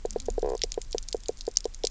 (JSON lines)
{"label": "biophony, knock croak", "recorder": "SoundTrap 300"}